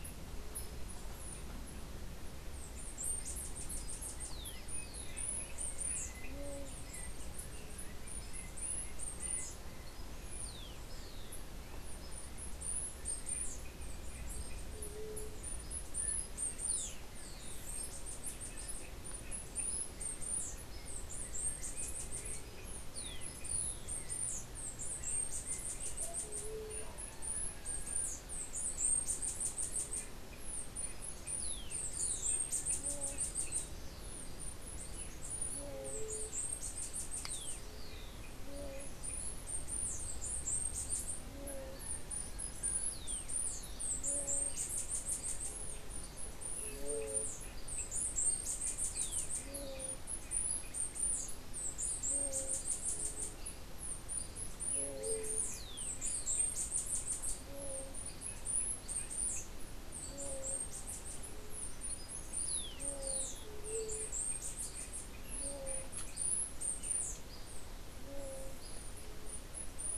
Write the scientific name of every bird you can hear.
Arremon brunneinucha, unidentified bird, Leptotila verreauxi